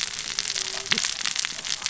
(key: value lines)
label: biophony, cascading saw
recorder: SoundTrap 600 or HydroMoth